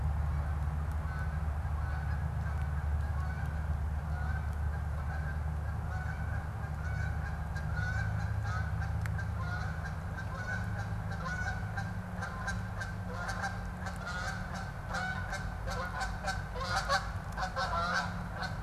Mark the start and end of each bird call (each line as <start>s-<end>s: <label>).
0.0s-18.6s: Canada Goose (Branta canadensis)